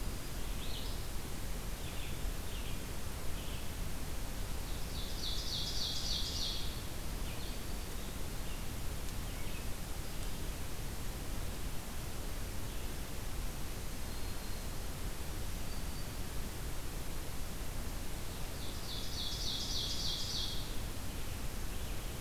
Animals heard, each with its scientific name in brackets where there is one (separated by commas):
Black-throated Green Warbler (Setophaga virens), Ovenbird (Seiurus aurocapilla), Red-eyed Vireo (Vireo olivaceus)